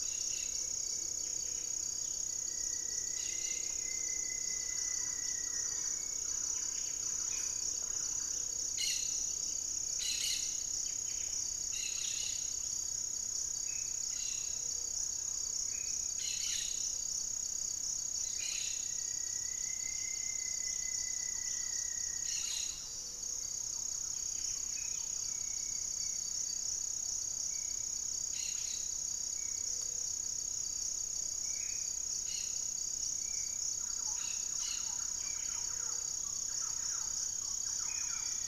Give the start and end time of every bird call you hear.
0.0s-22.7s: Cobalt-winged Parakeet (Brotogeris cyanoptera)
0.2s-6.6s: Ringed Woodpecker (Celeus torquatus)
0.8s-1.9s: Buff-breasted Wren (Cantorchilus leucotis)
2.1s-6.1s: Rufous-fronted Antthrush (Formicarius rufifrons)
4.4s-8.6s: Thrush-like Wren (Campylorhynchus turdinus)
4.7s-9.7s: unidentified bird
6.3s-11.5s: Buff-breasted Wren (Cantorchilus leucotis)
12.3s-12.8s: unidentified bird
12.4s-15.2s: Gray-cowled Wood-Rail (Aramides cajaneus)
13.4s-18.7s: Black-faced Antthrush (Formicarius analis)
14.3s-15.0s: Gray-fronted Dove (Leptotila rufaxilla)
18.3s-22.3s: Rufous-fronted Antthrush (Formicarius rufifrons)
19.6s-25.4s: Buff-breasted Wren (Cantorchilus leucotis)
20.7s-25.6s: Thrush-like Wren (Campylorhynchus turdinus)
22.7s-23.6s: Gray-fronted Dove (Leptotila rufaxilla)
24.5s-25.0s: Black-faced Antthrush (Formicarius analis)
25.1s-38.5s: Spot-winged Antshrike (Pygiptila stellaris)
26.7s-32.0s: Plumbeous Pigeon (Patagioenas plumbea)
28.1s-35.1s: Cobalt-winged Parakeet (Brotogeris cyanoptera)
29.5s-30.2s: Gray-fronted Dove (Leptotila rufaxilla)
31.3s-32.0s: Black-faced Antthrush (Formicarius analis)
33.7s-38.5s: Thrush-like Wren (Campylorhynchus turdinus)
35.5s-36.2s: Gray-fronted Dove (Leptotila rufaxilla)
35.8s-36.7s: unidentified bird
37.6s-38.3s: Black-faced Antthrush (Formicarius analis)

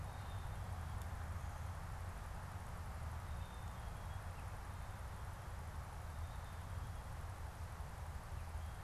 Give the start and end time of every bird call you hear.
0.1s-1.2s: Black-capped Chickadee (Poecile atricapillus)
3.1s-4.4s: Black-capped Chickadee (Poecile atricapillus)

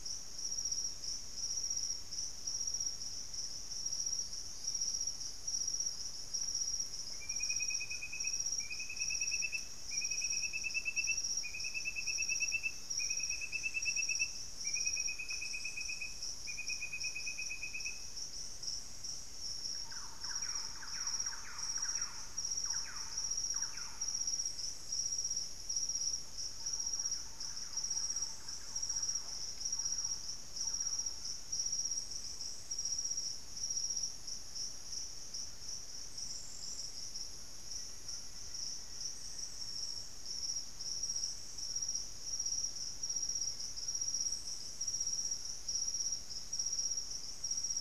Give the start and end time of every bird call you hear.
0.0s-6.4s: Hauxwell's Thrush (Turdus hauxwelli)
7.8s-17.2s: White-throated Toucan (Ramphastos tucanus)
19.5s-31.5s: Thrush-like Wren (Campylorhynchus turdinus)
30.9s-44.3s: White-throated Toucan (Ramphastos tucanus)
37.3s-39.9s: Black-faced Antthrush (Formicarius analis)

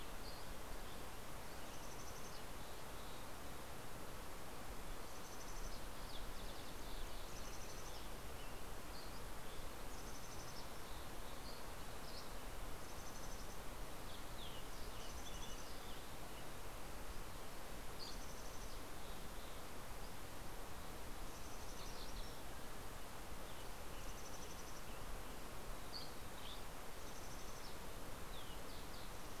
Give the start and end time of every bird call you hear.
0.0s-1.2s: Dusky Flycatcher (Empidonax oberholseri)
1.5s-3.4s: Mountain Chickadee (Poecile gambeli)
4.8s-5.8s: Mountain Chickadee (Poecile gambeli)
7.3s-8.3s: Mountain Chickadee (Poecile gambeli)
8.6s-9.6s: Dusky Flycatcher (Empidonax oberholseri)
9.5s-11.4s: Mountain Chickadee (Poecile gambeli)
11.2s-12.6s: Dusky Flycatcher (Empidonax oberholseri)
12.7s-13.8s: Mountain Chickadee (Poecile gambeli)
14.0s-16.9s: Green-tailed Towhee (Pipilo chlorurus)
14.8s-16.7s: Mountain Chickadee (Poecile gambeli)
17.5s-18.3s: Dusky Flycatcher (Empidonax oberholseri)
18.1s-20.0s: Mountain Chickadee (Poecile gambeli)
21.1s-22.1s: Mountain Chickadee (Poecile gambeli)
21.8s-22.7s: MacGillivray's Warbler (Geothlypis tolmiei)
23.2s-25.5s: Western Tanager (Piranga ludoviciana)
23.8s-25.0s: Mountain Chickadee (Poecile gambeli)
25.8s-26.8s: Dusky Flycatcher (Empidonax oberholseri)
27.0s-28.2s: Mountain Chickadee (Poecile gambeli)
28.0s-29.4s: Green-tailed Towhee (Pipilo chlorurus)

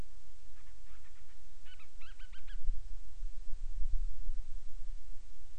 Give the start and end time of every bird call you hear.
0.5s-2.7s: Band-rumped Storm-Petrel (Hydrobates castro)

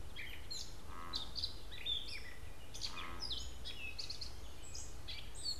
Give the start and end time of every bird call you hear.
0.0s-5.6s: Gray Catbird (Dumetella carolinensis)

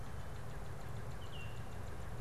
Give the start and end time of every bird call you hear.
0.0s-2.2s: Baltimore Oriole (Icterus galbula)
0.0s-2.2s: Northern Cardinal (Cardinalis cardinalis)

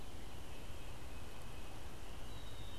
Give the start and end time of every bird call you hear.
0.0s-2.1s: Tufted Titmouse (Baeolophus bicolor)
2.0s-2.8s: Black-capped Chickadee (Poecile atricapillus)

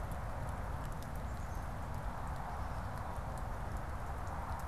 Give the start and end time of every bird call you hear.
1.2s-2.1s: Black-capped Chickadee (Poecile atricapillus)

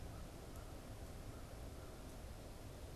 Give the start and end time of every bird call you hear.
0.0s-2.4s: American Crow (Corvus brachyrhynchos)

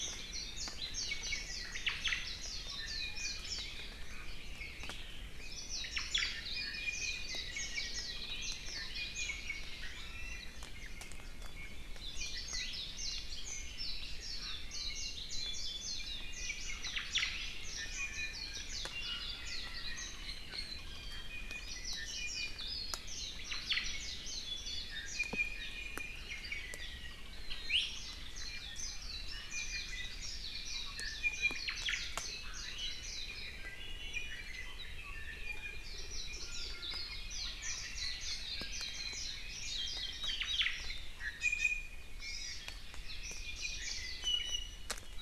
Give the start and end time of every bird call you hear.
0.0s-3.8s: Warbling White-eye (Zosterops japonicus)
1.7s-2.3s: Omao (Myadestes obscurus)
2.7s-3.5s: Iiwi (Drepanis coccinea)
5.4s-8.9s: Warbling White-eye (Zosterops japonicus)
5.8s-6.3s: Omao (Myadestes obscurus)
6.5s-7.3s: Iiwi (Drepanis coccinea)
8.9s-9.8s: Iiwi (Drepanis coccinea)
12.0s-20.8s: Warbling White-eye (Zosterops japonicus)
16.8s-17.5s: Omao (Myadestes obscurus)
17.8s-18.7s: Iiwi (Drepanis coccinea)
20.2s-22.7s: Iiwi (Drepanis coccinea)
21.6s-24.9s: Warbling White-eye (Zosterops japonicus)
23.3s-24.2s: Omao (Myadestes obscurus)
24.9s-27.2s: Iiwi (Drepanis coccinea)
27.7s-27.9s: Iiwi (Drepanis coccinea)
27.9s-33.4s: Warbling White-eye (Zosterops japonicus)
29.3s-30.2s: Iiwi (Drepanis coccinea)
31.0s-31.7s: Iiwi (Drepanis coccinea)
31.6s-32.0s: Omao (Myadestes obscurus)
33.6s-35.9s: Iiwi (Drepanis coccinea)
35.8s-41.1s: Warbling White-eye (Zosterops japonicus)
36.3s-37.4s: Iiwi (Drepanis coccinea)
40.2s-40.7s: Omao (Myadestes obscurus)
41.2s-42.1s: Iiwi (Drepanis coccinea)
42.2s-42.6s: Hawaii Amakihi (Chlorodrepanis virens)
43.1s-44.2s: Warbling White-eye (Zosterops japonicus)
43.8s-44.9s: Iiwi (Drepanis coccinea)

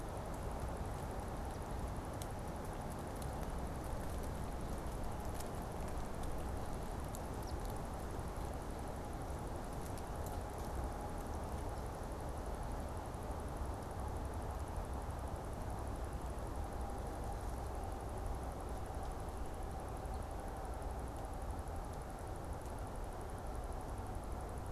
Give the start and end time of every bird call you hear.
7.4s-7.6s: Eastern Phoebe (Sayornis phoebe)

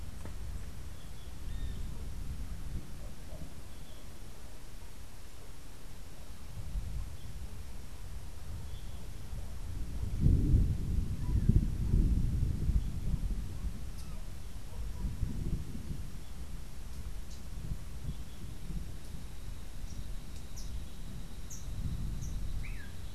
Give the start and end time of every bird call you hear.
0.8s-1.4s: Yellow-throated Euphonia (Euphonia hirundinacea)
19.9s-22.6s: Rufous-capped Warbler (Basileuterus rufifrons)
22.4s-23.1s: Long-tailed Manakin (Chiroxiphia linearis)

